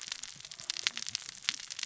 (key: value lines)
label: biophony, cascading saw
recorder: SoundTrap 600 or HydroMoth